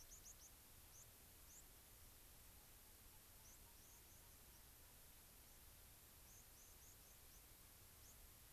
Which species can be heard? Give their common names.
White-crowned Sparrow, unidentified bird